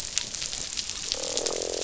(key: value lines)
label: biophony, croak
recorder: SoundTrap 500